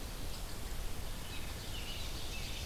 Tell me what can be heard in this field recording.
Red-eyed Vireo, American Robin, Ovenbird